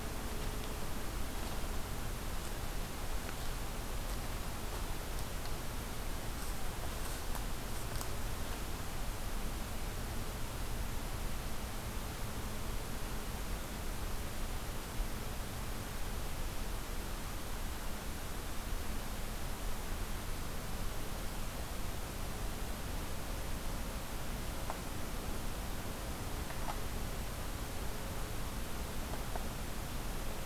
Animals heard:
forest ambience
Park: Acadia National Park